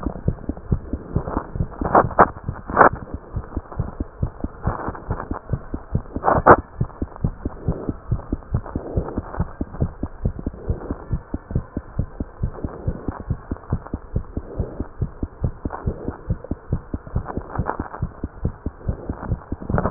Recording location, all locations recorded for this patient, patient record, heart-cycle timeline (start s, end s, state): mitral valve (MV)
aortic valve (AV)+pulmonary valve (PV)+tricuspid valve (TV)+mitral valve (MV)
#Age: Child
#Sex: Female
#Height: 78.0 cm
#Weight: 10.3 kg
#Pregnancy status: False
#Murmur: Absent
#Murmur locations: nan
#Most audible location: nan
#Systolic murmur timing: nan
#Systolic murmur shape: nan
#Systolic murmur grading: nan
#Systolic murmur pitch: nan
#Systolic murmur quality: nan
#Diastolic murmur timing: nan
#Diastolic murmur shape: nan
#Diastolic murmur grading: nan
#Diastolic murmur pitch: nan
#Diastolic murmur quality: nan
#Outcome: Normal
#Campaign: 2015 screening campaign
0.00	7.08	unannotated
7.08	7.24	diastole
7.24	7.34	S1
7.34	7.46	systole
7.46	7.54	S2
7.54	7.66	diastole
7.66	7.78	S1
7.78	7.88	systole
7.88	7.96	S2
7.96	8.12	diastole
8.12	8.22	S1
8.22	8.32	systole
8.32	8.40	S2
8.40	8.54	diastole
8.54	8.64	S1
8.64	8.76	systole
8.76	8.84	S2
8.84	8.96	diastole
8.96	9.06	S1
9.06	9.16	systole
9.16	9.24	S2
9.24	9.38	diastole
9.38	9.48	S1
9.48	9.59	systole
9.59	9.68	S2
9.68	9.80	diastole
9.80	9.92	S1
9.92	10.02	systole
10.02	10.10	S2
10.10	10.22	diastole
10.22	10.32	S1
10.32	10.43	systole
10.43	10.54	S2
10.54	10.66	diastole
10.66	10.80	S1
10.80	10.88	systole
10.88	10.98	S2
10.98	11.09	diastole
11.09	11.22	S1
11.22	11.32	systole
11.32	11.40	S2
11.40	11.54	diastole
11.54	11.64	S1
11.64	11.73	systole
11.73	11.82	S2
11.82	11.96	diastole
11.96	12.08	S1
12.08	12.18	systole
12.18	12.28	S2
12.28	12.40	diastole
12.40	12.52	S1
12.52	12.61	systole
12.61	12.72	S2
12.72	12.86	diastole
12.86	12.98	S1
12.98	13.05	systole
13.05	13.16	S2
13.16	13.28	diastole
13.28	13.40	S1
13.40	13.48	systole
13.48	13.58	S2
13.58	13.69	diastole
13.69	13.79	S1
13.79	13.90	systole
13.90	14.02	S2
14.02	14.12	diastole
14.12	14.26	S1
14.26	14.34	systole
14.34	14.44	S2
14.44	14.58	diastole
14.58	14.68	S1
14.68	14.77	systole
14.77	14.88	S2
14.88	14.97	diastole
14.97	15.12	S1
15.12	15.19	systole
15.19	15.28	S2
15.28	15.42	diastole
15.42	15.54	S1
15.54	15.63	systole
15.63	15.72	S2
15.72	15.86	diastole
15.86	15.96	S1
15.96	16.06	systole
16.06	16.14	S2
16.14	16.28	diastole
16.28	16.40	S1
16.40	16.49	systole
16.49	16.58	S2
16.58	16.70	diastole
16.70	16.82	S1
16.82	16.91	systole
16.91	17.00	S2
17.00	17.13	diastole
17.13	17.26	S1
17.26	17.34	systole
17.34	17.44	S2
17.44	17.56	diastole
17.56	17.68	S1
17.68	17.76	systole
17.76	17.86	S2
17.86	18.00	diastole
18.00	18.12	S1
18.12	18.21	systole
18.21	18.30	S2
18.30	18.41	diastole
18.41	18.54	S1
18.54	18.63	systole
18.63	18.74	S2
18.74	18.85	diastole
18.85	18.98	S1
18.98	19.06	systole
19.06	19.16	S2
19.16	19.30	diastole
19.30	19.90	unannotated